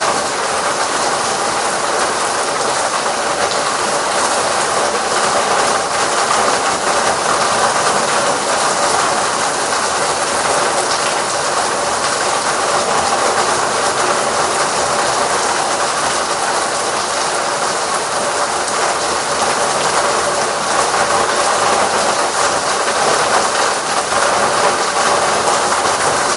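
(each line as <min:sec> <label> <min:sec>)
0:00.0 A storm with steady rain striking various surfaces and occasionally rattling pieces of trash, creating a weather-dominated ambiance. 0:26.4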